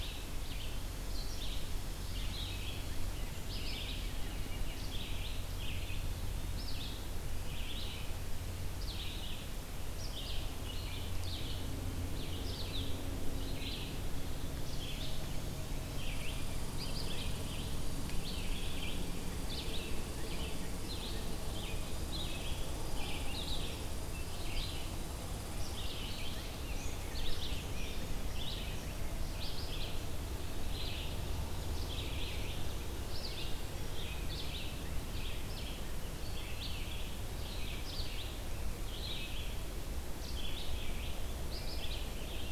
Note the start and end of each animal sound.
0.0s-42.5s: Red-eyed Vireo (Vireo olivaceus)
16.1s-26.8s: Red Squirrel (Tamiasciurus hudsonicus)

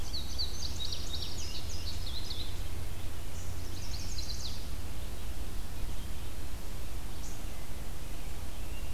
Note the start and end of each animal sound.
0.0s-2.8s: Indigo Bunting (Passerina cyanea)
3.5s-4.7s: Chestnut-sided Warbler (Setophaga pensylvanica)

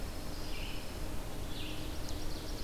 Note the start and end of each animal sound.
0.0s-1.2s: Pine Warbler (Setophaga pinus)
0.0s-2.6s: Red-eyed Vireo (Vireo olivaceus)
1.3s-2.6s: Ovenbird (Seiurus aurocapilla)

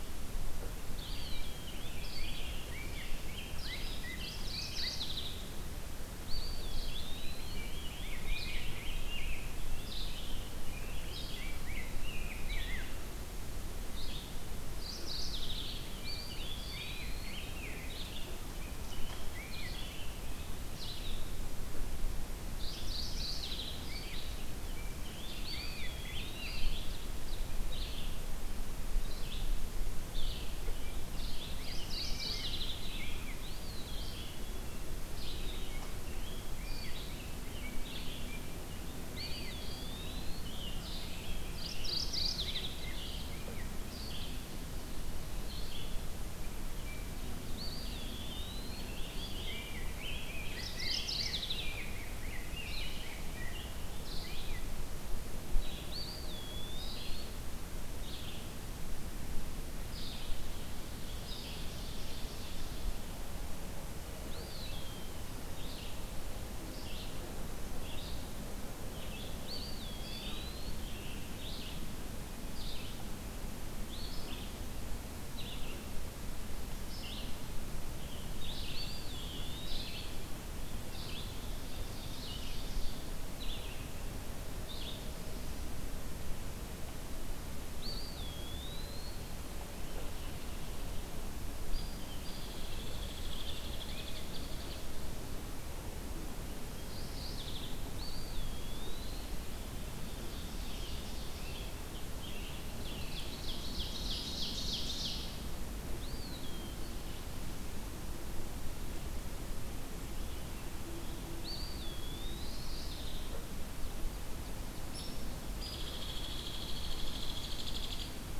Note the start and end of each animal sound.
0.7s-58.4s: Red-eyed Vireo (Vireo olivaceus)
0.9s-1.8s: Eastern Wood-Pewee (Contopus virens)
1.2s-5.1s: Rose-breasted Grosbeak (Pheucticus ludovicianus)
4.0s-5.5s: Mourning Warbler (Geothlypis philadelphia)
6.0s-7.9s: Eastern Wood-Pewee (Contopus virens)
6.8s-9.6s: Rose-breasted Grosbeak (Pheucticus ludovicianus)
10.6s-12.9s: Rose-breasted Grosbeak (Pheucticus ludovicianus)
14.6s-16.0s: Mourning Warbler (Geothlypis philadelphia)
15.5s-19.9s: Rose-breasted Grosbeak (Pheucticus ludovicianus)
15.9s-17.5s: Eastern Wood-Pewee (Contopus virens)
22.4s-24.1s: Mourning Warbler (Geothlypis philadelphia)
23.8s-26.7s: Rose-breasted Grosbeak (Pheucticus ludovicianus)
25.2s-27.0s: Eastern Wood-Pewee (Contopus virens)
26.0s-27.5s: Ovenbird (Seiurus aurocapilla)
31.1s-32.8s: Mourning Warbler (Geothlypis philadelphia)
31.4s-33.4s: Rose-breasted Grosbeak (Pheucticus ludovicianus)
33.0s-34.5s: Eastern Wood-Pewee (Contopus virens)
35.4s-39.6s: Rose-breasted Grosbeak (Pheucticus ludovicianus)
38.9s-40.7s: Eastern Wood-Pewee (Contopus virens)
40.8s-43.8s: Rose-breasted Grosbeak (Pheucticus ludovicianus)
41.4s-43.1s: Mourning Warbler (Geothlypis philadelphia)
47.5s-49.0s: Eastern Wood-Pewee (Contopus virens)
49.3s-54.7s: Rose-breasted Grosbeak (Pheucticus ludovicianus)
50.4s-51.7s: Mourning Warbler (Geothlypis philadelphia)
55.7s-57.5s: Eastern Wood-Pewee (Contopus virens)
59.8s-85.4s: Red-eyed Vireo (Vireo olivaceus)
60.9s-63.0s: Ovenbird (Seiurus aurocapilla)
64.3s-65.5s: Eastern Wood-Pewee (Contopus virens)
69.2s-71.2s: Eastern Wood-Pewee (Contopus virens)
78.5s-80.4s: Eastern Wood-Pewee (Contopus virens)
81.3s-83.1s: Ovenbird (Seiurus aurocapilla)
87.6s-89.1s: Eastern Wood-Pewee (Contopus virens)
91.7s-95.1s: Hairy Woodpecker (Dryobates villosus)
96.7s-98.0s: Mourning Warbler (Geothlypis philadelphia)
97.8s-99.5s: Eastern Wood-Pewee (Contopus virens)
99.8s-101.8s: Ovenbird (Seiurus aurocapilla)
100.6s-103.2s: Scarlet Tanager (Piranga olivacea)
102.7s-105.4s: Ovenbird (Seiurus aurocapilla)
105.7s-107.3s: Eastern Wood-Pewee (Contopus virens)
111.2s-113.1s: Eastern Wood-Pewee (Contopus virens)
112.2s-113.4s: Mourning Warbler (Geothlypis philadelphia)
114.8s-115.2s: Hairy Woodpecker (Dryobates villosus)
115.5s-118.4s: Hairy Woodpecker (Dryobates villosus)

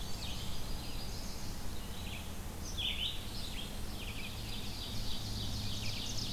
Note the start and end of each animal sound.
0.0s-0.7s: Black-and-white Warbler (Mniotilta varia)
0.0s-6.2s: Red-eyed Vireo (Vireo olivaceus)
0.2s-1.6s: Yellow Warbler (Setophaga petechia)
3.8s-6.3s: Ovenbird (Seiurus aurocapilla)

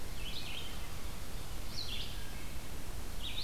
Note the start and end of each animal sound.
0.0s-3.4s: Red-eyed Vireo (Vireo olivaceus)
2.0s-2.7s: Wood Thrush (Hylocichla mustelina)

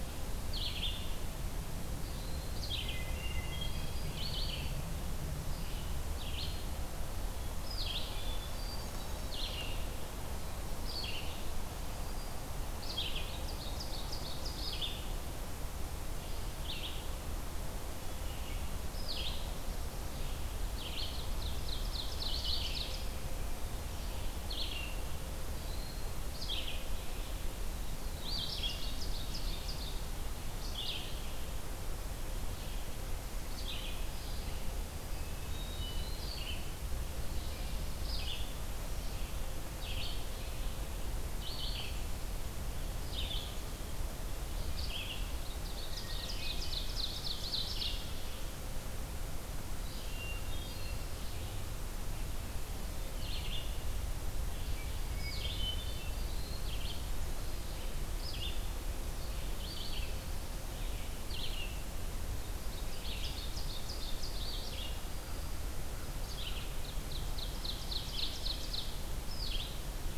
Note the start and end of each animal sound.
0.0s-34.6s: Red-eyed Vireo (Vireo olivaceus)
2.5s-4.1s: Hermit Thrush (Catharus guttatus)
7.9s-9.5s: Hermit Thrush (Catharus guttatus)
13.0s-14.9s: Ovenbird (Seiurus aurocapilla)
21.0s-22.9s: Ovenbird (Seiurus aurocapilla)
28.1s-30.0s: Ovenbird (Seiurus aurocapilla)
34.8s-36.5s: Hermit Thrush (Catharus guttatus)
36.0s-70.2s: Red-eyed Vireo (Vireo olivaceus)
45.3s-48.3s: Ovenbird (Seiurus aurocapilla)
49.7s-51.3s: Hermit Thrush (Catharus guttatus)
54.9s-56.5s: Hermit Thrush (Catharus guttatus)
62.6s-65.0s: Ovenbird (Seiurus aurocapilla)
66.5s-69.2s: Ovenbird (Seiurus aurocapilla)

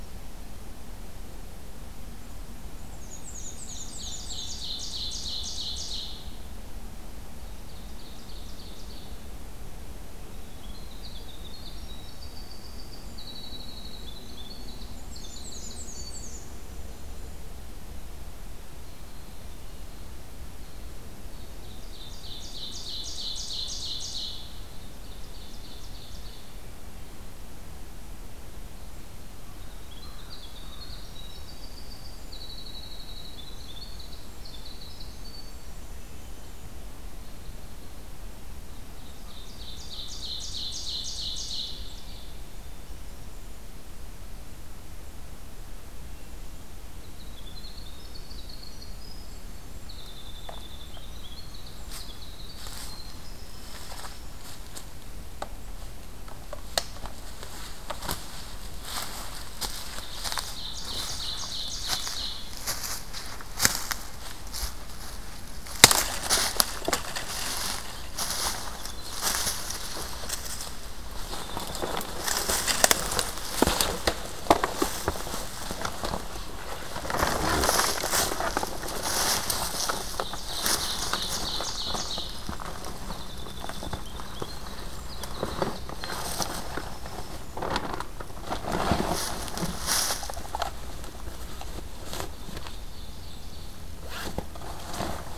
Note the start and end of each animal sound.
2.9s-4.6s: Black-and-white Warbler (Mniotilta varia)
3.1s-6.2s: Ovenbird (Seiurus aurocapilla)
7.4s-9.2s: Ovenbird (Seiurus aurocapilla)
10.5s-17.4s: Winter Wren (Troglodytes hiemalis)
15.0s-16.4s: Black-and-white Warbler (Mniotilta varia)
21.4s-26.4s: Ovenbird (Seiurus aurocapilla)
29.5s-36.7s: Winter Wren (Troglodytes hiemalis)
29.6s-31.0s: American Crow (Corvus brachyrhynchos)
38.6s-42.5s: Ovenbird (Seiurus aurocapilla)
47.0s-54.4s: Winter Wren (Troglodytes hiemalis)
60.1s-62.5s: Ovenbird (Seiurus aurocapilla)
68.6s-72.4s: Winter Wren (Troglodytes hiemalis)
80.4s-82.4s: Ovenbird (Seiurus aurocapilla)
82.9s-88.1s: Winter Wren (Troglodytes hiemalis)
91.9s-93.9s: Ovenbird (Seiurus aurocapilla)

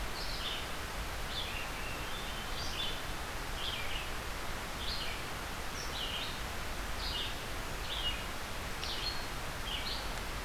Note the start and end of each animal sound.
0.0s-10.4s: Red-eyed Vireo (Vireo olivaceus)
1.4s-2.6s: Hermit Thrush (Catharus guttatus)

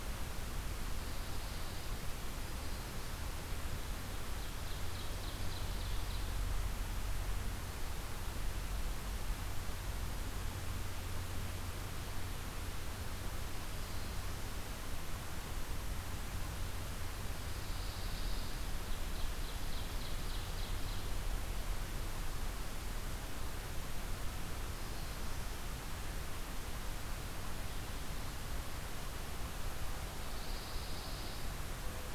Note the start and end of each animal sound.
0.8s-2.0s: Pine Warbler (Setophaga pinus)
4.2s-6.4s: Ovenbird (Seiurus aurocapilla)
17.2s-18.7s: Pine Warbler (Setophaga pinus)
18.7s-21.2s: Ovenbird (Seiurus aurocapilla)
30.2s-31.6s: Pine Warbler (Setophaga pinus)

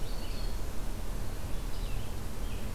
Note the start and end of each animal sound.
0.0s-0.7s: Black-throated Green Warbler (Setophaga virens)
0.0s-2.7s: Red-eyed Vireo (Vireo olivaceus)
1.7s-2.7s: American Robin (Turdus migratorius)

